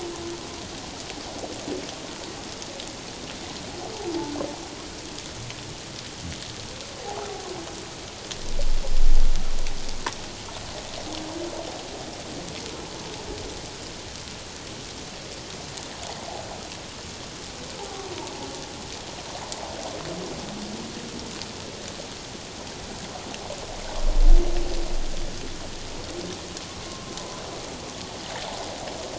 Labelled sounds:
7.0	7.3	humpback whale, 0.78 to 0.94 kHz
26.9	27.2	humpback whale, 1.0 to 1.1 kHz

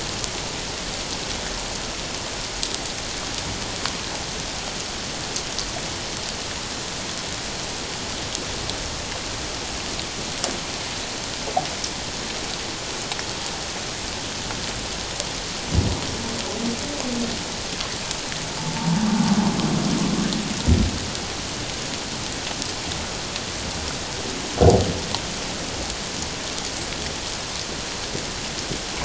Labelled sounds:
18.8	19.0	humpback whale, 0.84 to 1.0 kHz

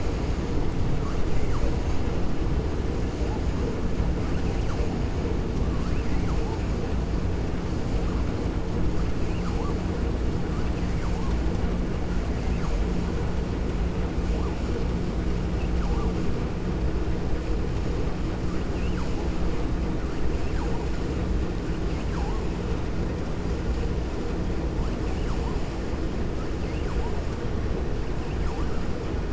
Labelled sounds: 9.2	9.8	vessel noise, 0.49 to 5.0 kHz
10.5	11.3	vessel noise, 0.75 to 2.7 kHz

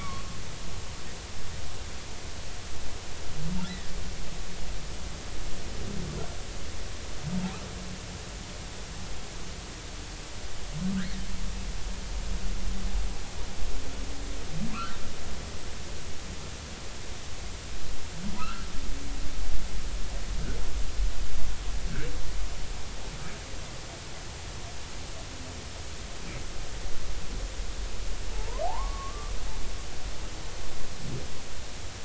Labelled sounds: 0.0	0.2	humpback whale, 1.0 to 1.2 kHz
14.7	15.0	humpback whale, 0.99 to 1.6 kHz
18.4	18.6	humpback whale, 1.2 to 1.7 kHz
28.3	29.3	humpback whale, 0.80 to 1.2 kHz

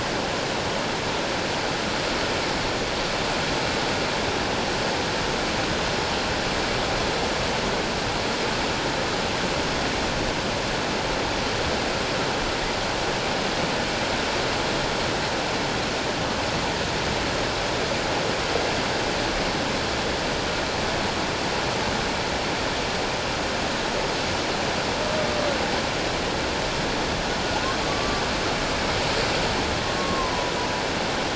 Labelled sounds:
27.9	28.2	humpback whale, 1.1 to 1.2 kHz
30.0	30.5	humpback whale, 0.94 to 1.2 kHz

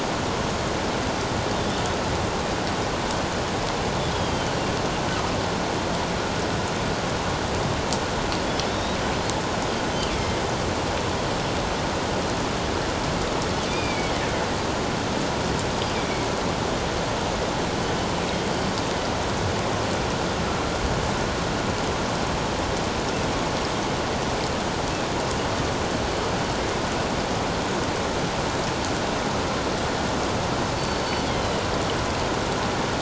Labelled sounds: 1.5	1.8	killer whale, northern resident, G clan, 3.4 to 3.7 kHz
4.1	4.6	killer whale, northern resident, G clan, 2.9 to 3.4 kHz
8.7	9.0	killer whale, northern resident, G clan, 3.4 to 3.9 kHz
10.1	10.4	killer whale, northern resident, G clan, 2.1 to 3.5 kHz
13.7	14.1	killer whale, northern resident, G clan, 2.1 to 5.0 kHz
30.7	31.2	killer whale, northern resident, G clan, 4.4 to 4.6 kHz

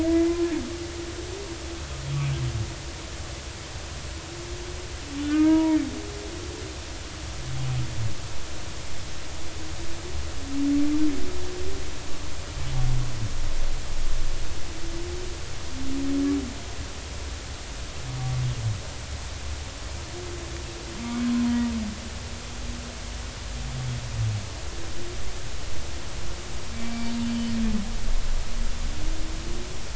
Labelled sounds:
0.0	0.4	humpback whale, 1.6 to 2.1 kHz
5.3	5.8	humpback whale, 0.90 to 2.3 kHz
21.0	21.3	humpback whale, 2.1 to 2.3 kHz
26.7	27.6	humpback whale, 2.2 to 4.5 kHz

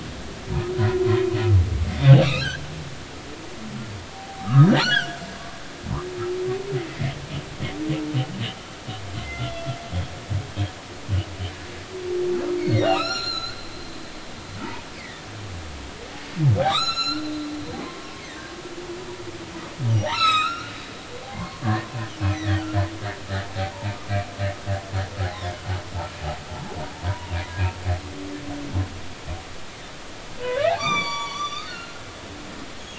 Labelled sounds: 2.1	3.5	humpback whale, 1.1 to 2.9 kHz
4.1	5.3	humpback whale, 0.80 to 7.8 kHz
6.9	7.1	humpback whale, 2.0 to 2.2 kHz
9.1	9.7	humpback whale, 2.0 to 3.5 kHz
12.6	13.6	humpback whale, 1.1 to 8.0 kHz
14.9	15.3	humpback whale, 1.7 to 2.6 kHz
16.6	17.3	humpback whale, 1.1 to 7.0 kHz
17.8	18.2	humpback whale, 0.99 to 1.1 kHz
19.9	20.7	humpback whale, 0.80 to 8.0 kHz
21.3	21.9	humpback whale, 0.90 to 4.4 kHz
22.3	22.6	humpback whale, 1.6 to 2.1 kHz
23.7	24.0	humpback whale, 0.83 to 1.0 kHz
27.1	27.3	humpback whale, 0.90 to 1.0 kHz
30.4	32.0	humpback whale, 0.80 to 8.0 kHz

